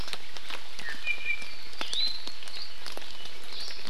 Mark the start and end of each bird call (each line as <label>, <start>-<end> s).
Iiwi (Drepanis coccinea), 0.8-1.5 s
Iiwi (Drepanis coccinea), 1.8-2.2 s
Iiwi (Drepanis coccinea), 3.5-3.8 s